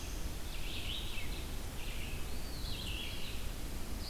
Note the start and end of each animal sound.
0.0s-4.1s: Red-eyed Vireo (Vireo olivaceus)
2.1s-3.1s: Eastern Wood-Pewee (Contopus virens)

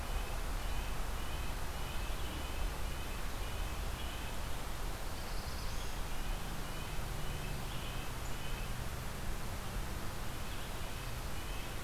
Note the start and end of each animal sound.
0.0s-11.8s: Red-breasted Nuthatch (Sitta canadensis)
4.6s-6.0s: Black-throated Blue Warbler (Setophaga caerulescens)

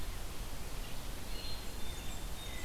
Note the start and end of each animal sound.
1.1s-2.6s: Red-eyed Vireo (Vireo olivaceus)
1.2s-2.3s: Black-capped Chickadee (Poecile atricapillus)
1.2s-2.6s: Blackburnian Warbler (Setophaga fusca)

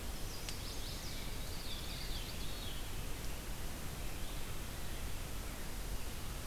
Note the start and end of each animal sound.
0.0s-1.3s: Chestnut-sided Warbler (Setophaga pensylvanica)
1.3s-3.1s: Veery (Catharus fuscescens)

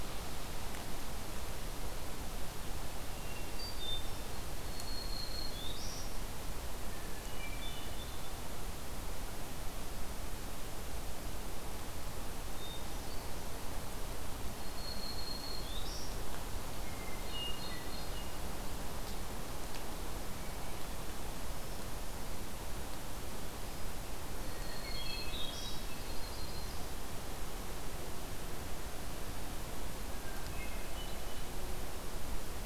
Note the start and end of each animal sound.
3.0s-4.3s: Hermit Thrush (Catharus guttatus)
4.6s-6.1s: Black-throated Green Warbler (Setophaga virens)
7.2s-8.4s: Hermit Thrush (Catharus guttatus)
12.5s-13.7s: Hermit Thrush (Catharus guttatus)
14.5s-16.2s: Black-throated Green Warbler (Setophaga virens)
16.8s-18.4s: Hermit Thrush (Catharus guttatus)
24.4s-25.8s: Black-throated Green Warbler (Setophaga virens)
24.5s-25.8s: Hermit Thrush (Catharus guttatus)
25.8s-27.0s: Yellow-rumped Warbler (Setophaga coronata)
30.1s-31.6s: Hermit Thrush (Catharus guttatus)

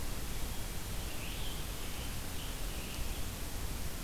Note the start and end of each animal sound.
1.2s-3.4s: Scarlet Tanager (Piranga olivacea)

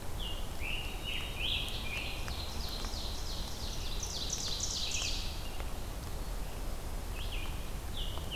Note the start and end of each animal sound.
0.0s-2.7s: Scarlet Tanager (Piranga olivacea)
0.0s-8.4s: Red-eyed Vireo (Vireo olivaceus)
0.8s-1.7s: Black-capped Chickadee (Poecile atricapillus)
2.0s-5.6s: Ovenbird (Seiurus aurocapilla)
7.7s-8.4s: Scarlet Tanager (Piranga olivacea)

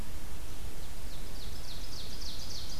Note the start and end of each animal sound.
0.0s-2.8s: Ovenbird (Seiurus aurocapilla)

